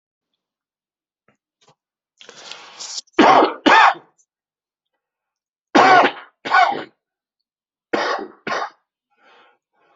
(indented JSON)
{
  "expert_labels": [
    {
      "quality": "poor",
      "cough_type": "dry",
      "dyspnea": false,
      "wheezing": false,
      "stridor": false,
      "choking": false,
      "congestion": false,
      "nothing": true,
      "diagnosis": "COVID-19",
      "severity": "severe"
    },
    {
      "quality": "good",
      "cough_type": "wet",
      "dyspnea": false,
      "wheezing": false,
      "stridor": false,
      "choking": false,
      "congestion": false,
      "nothing": true,
      "diagnosis": "lower respiratory tract infection",
      "severity": "mild"
    },
    {
      "quality": "good",
      "cough_type": "wet",
      "dyspnea": false,
      "wheezing": false,
      "stridor": false,
      "choking": false,
      "congestion": false,
      "nothing": true,
      "diagnosis": "lower respiratory tract infection",
      "severity": "mild"
    },
    {
      "quality": "good",
      "cough_type": "dry",
      "dyspnea": false,
      "wheezing": false,
      "stridor": false,
      "choking": false,
      "congestion": false,
      "nothing": true,
      "diagnosis": "upper respiratory tract infection",
      "severity": "mild"
    }
  ],
  "age": 52,
  "gender": "female",
  "respiratory_condition": false,
  "fever_muscle_pain": true,
  "status": "healthy"
}